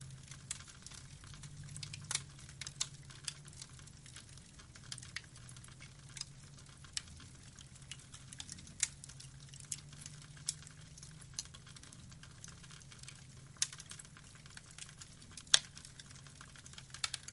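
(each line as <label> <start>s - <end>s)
Fire crackling in the background. 0.0s - 17.3s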